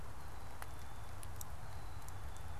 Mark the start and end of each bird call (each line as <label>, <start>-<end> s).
Black-capped Chickadee (Poecile atricapillus), 1.6-2.6 s